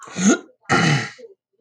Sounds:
Throat clearing